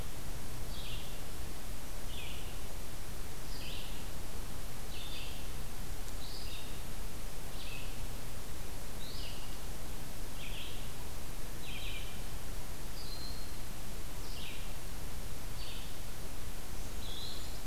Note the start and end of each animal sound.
[0.00, 7.95] Red-eyed Vireo (Vireo olivaceus)
[8.92, 17.66] Red-eyed Vireo (Vireo olivaceus)
[12.77, 13.63] Broad-winged Hawk (Buteo platypterus)

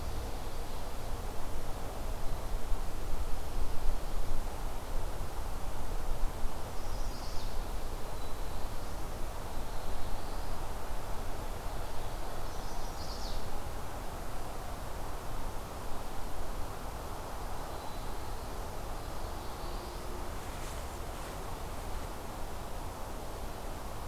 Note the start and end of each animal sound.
[6.57, 7.56] Chestnut-sided Warbler (Setophaga pensylvanica)
[9.44, 10.61] Black-throated Blue Warbler (Setophaga caerulescens)
[12.39, 13.43] Chestnut-sided Warbler (Setophaga pensylvanica)
[18.89, 20.11] Black-throated Blue Warbler (Setophaga caerulescens)

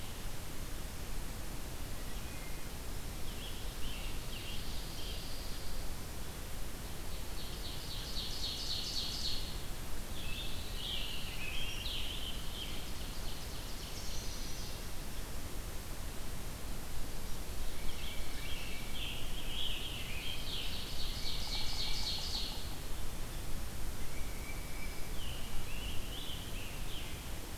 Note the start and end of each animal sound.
[1.89, 2.79] Wood Thrush (Hylocichla mustelina)
[2.98, 5.38] Scarlet Tanager (Piranga olivacea)
[4.37, 5.97] Pine Warbler (Setophaga pinus)
[6.76, 9.69] Ovenbird (Seiurus aurocapilla)
[10.12, 11.53] Pine Warbler (Setophaga pinus)
[10.68, 12.74] Scarlet Tanager (Piranga olivacea)
[11.75, 14.92] Ovenbird (Seiurus aurocapilla)
[17.47, 18.77] Tufted Titmouse (Baeolophus bicolor)
[17.83, 20.79] American Robin (Turdus migratorius)
[19.72, 22.75] Ovenbird (Seiurus aurocapilla)
[21.06, 22.89] Yellow-bellied Sapsucker (Sphyrapicus varius)
[23.85, 24.97] Tufted Titmouse (Baeolophus bicolor)
[25.02, 27.28] American Robin (Turdus migratorius)

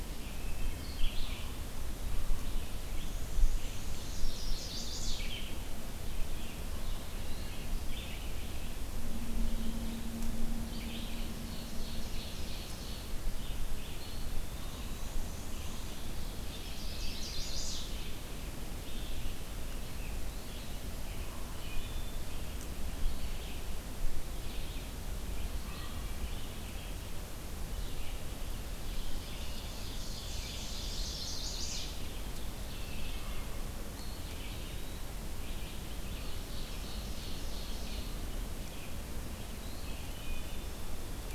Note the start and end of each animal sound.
[0.00, 41.35] Red-eyed Vireo (Vireo olivaceus)
[0.35, 0.89] Wood Thrush (Hylocichla mustelina)
[2.53, 4.34] Black-and-white Warbler (Mniotilta varia)
[3.86, 5.33] Chestnut-sided Warbler (Setophaga pensylvanica)
[11.01, 13.28] Ovenbird (Seiurus aurocapilla)
[13.84, 15.46] Eastern Wood-Pewee (Contopus virens)
[14.65, 16.05] Black-and-white Warbler (Mniotilta varia)
[15.50, 16.94] Ovenbird (Seiurus aurocapilla)
[16.28, 18.06] Chestnut-sided Warbler (Setophaga pensylvanica)
[20.28, 20.99] Eastern Wood-Pewee (Contopus virens)
[21.51, 22.27] Wood Thrush (Hylocichla mustelina)
[25.70, 26.33] Wood Thrush (Hylocichla mustelina)
[28.96, 31.06] Ovenbird (Seiurus aurocapilla)
[30.71, 32.10] Chestnut-sided Warbler (Setophaga pensylvanica)
[32.67, 33.57] Wood Thrush (Hylocichla mustelina)
[33.77, 35.23] Eastern Wood-Pewee (Contopus virens)
[36.15, 38.14] Ovenbird (Seiurus aurocapilla)
[39.45, 41.28] Eastern Wood-Pewee (Contopus virens)
[39.95, 40.68] Wood Thrush (Hylocichla mustelina)

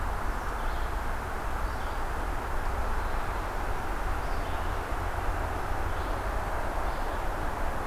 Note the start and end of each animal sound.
[0.00, 7.87] Red-eyed Vireo (Vireo olivaceus)

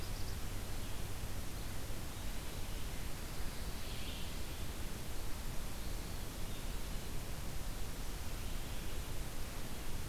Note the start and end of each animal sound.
[0.00, 10.08] Red-eyed Vireo (Vireo olivaceus)
[1.52, 2.77] Eastern Wood-Pewee (Contopus virens)
[5.76, 7.21] Eastern Wood-Pewee (Contopus virens)

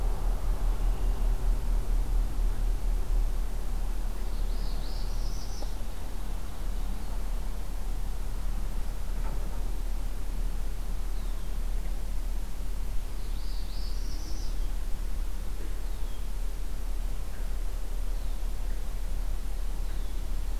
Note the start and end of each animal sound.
[4.04, 6.05] Northern Parula (Setophaga americana)
[11.14, 11.49] Red-winged Blackbird (Agelaius phoeniceus)
[12.84, 14.84] Northern Parula (Setophaga americana)
[15.73, 16.25] Red-winged Blackbird (Agelaius phoeniceus)

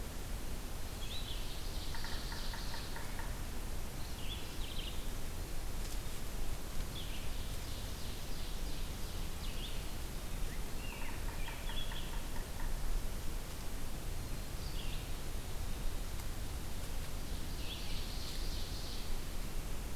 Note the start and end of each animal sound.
[0.00, 19.95] Red-eyed Vireo (Vireo olivaceus)
[1.27, 3.23] Ovenbird (Seiurus aurocapilla)
[1.78, 3.53] Yellow-bellied Sapsucker (Sphyrapicus varius)
[4.33, 5.06] Mourning Warbler (Geothlypis philadelphia)
[7.09, 9.31] Ovenbird (Seiurus aurocapilla)
[10.87, 12.80] Yellow-bellied Sapsucker (Sphyrapicus varius)
[17.20, 19.34] Ovenbird (Seiurus aurocapilla)

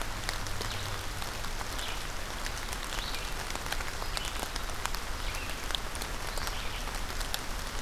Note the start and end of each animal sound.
[0.34, 7.81] Red-eyed Vireo (Vireo olivaceus)

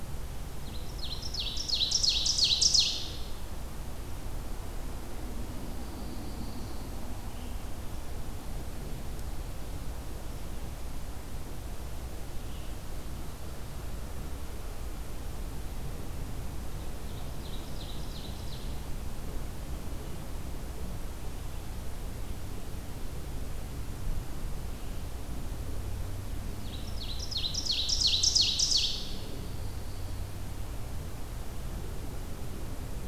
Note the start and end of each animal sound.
[0.64, 3.30] Ovenbird (Seiurus aurocapilla)
[5.47, 6.94] Pine Warbler (Setophaga pinus)
[7.16, 13.05] Red-eyed Vireo (Vireo olivaceus)
[16.95, 19.12] Ovenbird (Seiurus aurocapilla)
[26.68, 29.44] Ovenbird (Seiurus aurocapilla)
[28.97, 30.46] Pine Warbler (Setophaga pinus)

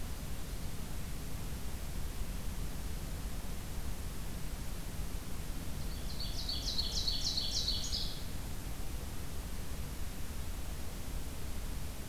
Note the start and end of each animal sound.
[5.74, 8.23] Ovenbird (Seiurus aurocapilla)

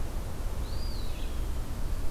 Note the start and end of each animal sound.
[0.45, 1.36] Eastern Wood-Pewee (Contopus virens)

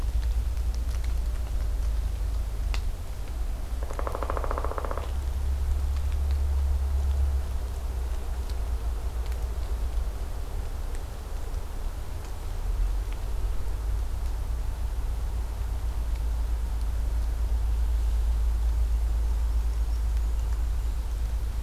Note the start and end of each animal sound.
[3.74, 5.16] Pileated Woodpecker (Dryocopus pileatus)
[18.39, 21.12] Black-and-white Warbler (Mniotilta varia)

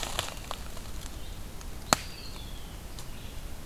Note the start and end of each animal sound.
[0.71, 3.65] Red-eyed Vireo (Vireo olivaceus)
[1.74, 2.90] Eastern Wood-Pewee (Contopus virens)

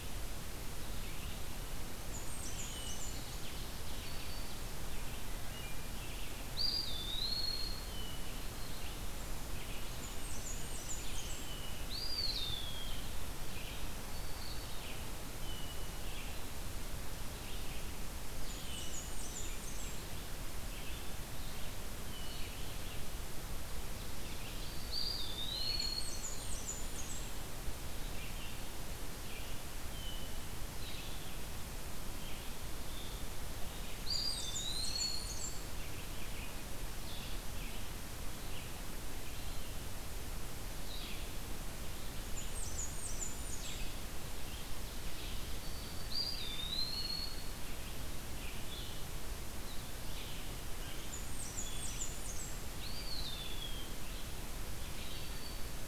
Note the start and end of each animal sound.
[0.00, 55.34] Red-eyed Vireo (Vireo olivaceus)
[1.85, 3.23] Blackburnian Warbler (Setophaga fusca)
[2.96, 3.34] Blue-headed Vireo (Vireo solitarius)
[3.28, 4.28] American Goldfinch (Spinus tristis)
[3.74, 4.59] Black-throated Green Warbler (Setophaga virens)
[5.22, 6.05] Wood Thrush (Hylocichla mustelina)
[6.46, 8.05] Eastern Wood-Pewee (Contopus virens)
[7.77, 8.34] Hermit Thrush (Catharus guttatus)
[9.90, 11.53] Blackburnian Warbler (Setophaga fusca)
[11.33, 11.93] Hermit Thrush (Catharus guttatus)
[11.72, 13.12] Eastern Wood-Pewee (Contopus virens)
[13.92, 14.74] Black-throated Green Warbler (Setophaga virens)
[15.32, 15.96] Hermit Thrush (Catharus guttatus)
[18.32, 20.03] Blackburnian Warbler (Setophaga fusca)
[22.00, 22.55] Hermit Thrush (Catharus guttatus)
[24.56, 25.25] Black-throated Green Warbler (Setophaga virens)
[24.78, 26.22] Eastern Wood-Pewee (Contopus virens)
[25.41, 25.92] Hermit Thrush (Catharus guttatus)
[25.75, 27.81] Blackburnian Warbler (Setophaga fusca)
[29.86, 30.39] Hermit Thrush (Catharus guttatus)
[30.77, 49.08] Blue-headed Vireo (Vireo solitarius)
[33.77, 36.25] Blackburnian Warbler (Setophaga fusca)
[33.80, 35.61] Eastern Wood-Pewee (Contopus virens)
[42.22, 43.95] Blackburnian Warbler (Setophaga fusca)
[45.40, 46.20] Black-throated Green Warbler (Setophaga virens)
[46.00, 47.63] Eastern Wood-Pewee (Contopus virens)
[50.80, 52.73] Blackburnian Warbler (Setophaga fusca)
[52.64, 54.02] Eastern Wood-Pewee (Contopus virens)
[55.04, 55.88] Black-throated Green Warbler (Setophaga virens)

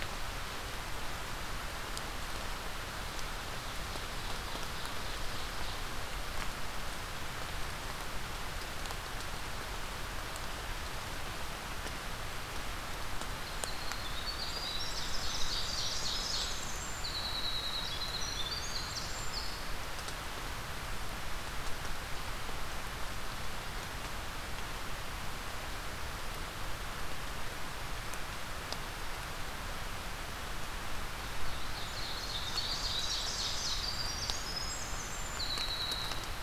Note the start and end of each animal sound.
[3.51, 5.94] Ovenbird (Seiurus aurocapilla)
[13.30, 19.94] Winter Wren (Troglodytes hiemalis)
[14.62, 16.68] Ovenbird (Seiurus aurocapilla)
[31.52, 33.98] Ovenbird (Seiurus aurocapilla)
[32.17, 36.35] Winter Wren (Troglodytes hiemalis)

